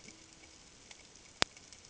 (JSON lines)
{"label": "ambient", "recorder": "HydroMoth"}